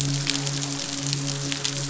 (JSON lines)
{"label": "biophony, midshipman", "recorder": "SoundTrap 500"}